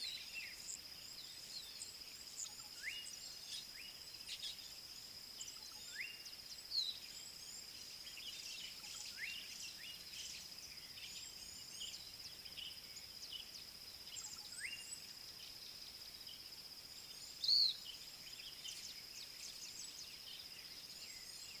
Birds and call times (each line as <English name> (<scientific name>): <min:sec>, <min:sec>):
Slate-colored Boubou (Laniarius funebris): 0:02.8, 0:14.7
Pale White-eye (Zosterops flavilateralis): 0:17.6